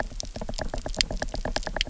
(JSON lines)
{"label": "biophony, knock", "recorder": "SoundTrap 300"}